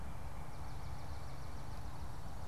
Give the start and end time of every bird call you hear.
[0.00, 1.80] Swamp Sparrow (Melospiza georgiana)

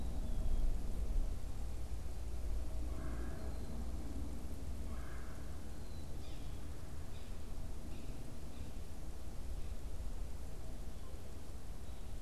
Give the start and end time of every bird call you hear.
[0.00, 3.83] Black-capped Chickadee (Poecile atricapillus)
[2.73, 3.83] Red-bellied Woodpecker (Melanerpes carolinus)
[4.73, 5.73] Red-bellied Woodpecker (Melanerpes carolinus)
[5.73, 6.53] Black-capped Chickadee (Poecile atricapillus)
[6.03, 8.93] unidentified bird

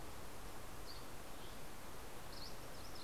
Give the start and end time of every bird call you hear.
[0.00, 2.50] Dusky Flycatcher (Empidonax oberholseri)
[2.00, 3.03] MacGillivray's Warbler (Geothlypis tolmiei)

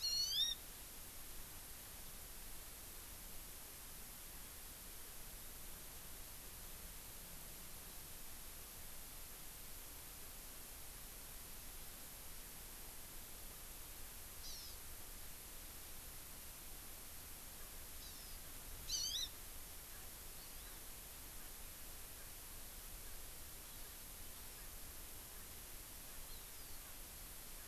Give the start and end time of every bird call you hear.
[0.00, 0.60] Hawaii Amakihi (Chlorodrepanis virens)
[14.40, 14.70] Hawaii Amakihi (Chlorodrepanis virens)
[17.60, 17.70] Erckel's Francolin (Pternistis erckelii)
[18.00, 18.40] Hawaii Amakihi (Chlorodrepanis virens)
[18.80, 19.30] Hawaii Amakihi (Chlorodrepanis virens)
[19.90, 20.10] Erckel's Francolin (Pternistis erckelii)
[20.30, 20.80] Hawaii Amakihi (Chlorodrepanis virens)
[20.60, 20.80] Erckel's Francolin (Pternistis erckelii)
[23.00, 23.20] Erckel's Francolin (Pternistis erckelii)
[23.70, 24.00] Erckel's Francolin (Pternistis erckelii)
[24.50, 24.70] Erckel's Francolin (Pternistis erckelii)
[26.20, 26.80] Hawaii Amakihi (Chlorodrepanis virens)

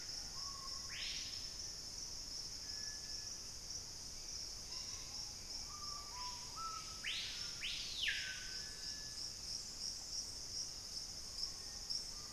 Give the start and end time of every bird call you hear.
[0.00, 2.22] Black-faced Antthrush (Formicarius analis)
[0.00, 12.33] Screaming Piha (Lipaugus vociferans)
[3.82, 12.33] Hauxwell's Thrush (Turdus hauxwelli)
[11.22, 12.33] Black-faced Antthrush (Formicarius analis)

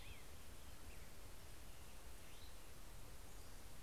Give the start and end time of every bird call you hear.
[0.00, 2.68] Black-headed Grosbeak (Pheucticus melanocephalus)
[0.00, 3.18] Cassin's Vireo (Vireo cassinii)

